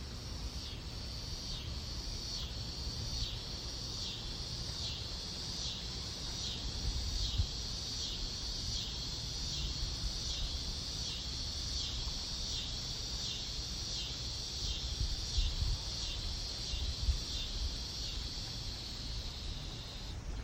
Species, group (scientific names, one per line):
Neotibicen pruinosus
Cicadidae